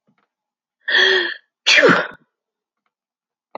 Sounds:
Sneeze